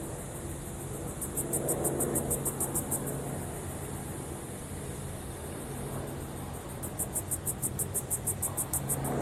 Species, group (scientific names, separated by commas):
Yoyetta celis, Cicadidae